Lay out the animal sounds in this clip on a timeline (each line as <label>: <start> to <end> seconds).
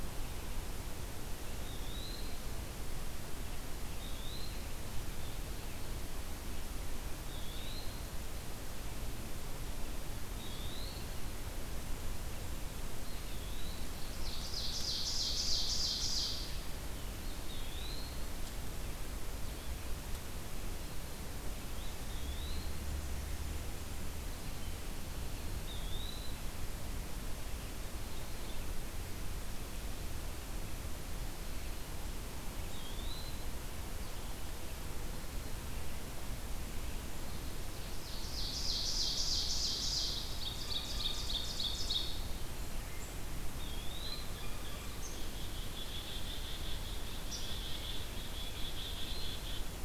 Eastern Wood-Pewee (Contopus virens): 1.4 to 2.4 seconds
Eastern Wood-Pewee (Contopus virens): 3.9 to 4.7 seconds
Eastern Wood-Pewee (Contopus virens): 7.2 to 8.1 seconds
Eastern Wood-Pewee (Contopus virens): 10.2 to 11.1 seconds
Eastern Wood-Pewee (Contopus virens): 12.9 to 13.9 seconds
Ovenbird (Seiurus aurocapilla): 13.6 to 16.5 seconds
Eastern Wood-Pewee (Contopus virens): 17.1 to 18.2 seconds
Eastern Wood-Pewee (Contopus virens): 21.7 to 22.8 seconds
Eastern Wood-Pewee (Contopus virens): 25.4 to 26.5 seconds
Eastern Wood-Pewee (Contopus virens): 32.5 to 33.7 seconds
Ovenbird (Seiurus aurocapilla): 37.7 to 42.3 seconds
Eastern Wood-Pewee (Contopus virens): 43.5 to 44.4 seconds
Blue Jay (Cyanocitta cristata): 44.0 to 45.0 seconds
Black-capped Chickadee (Poecile atricapillus): 45.0 to 49.8 seconds